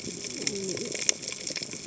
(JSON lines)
{"label": "biophony, cascading saw", "recorder": "HydroMoth"}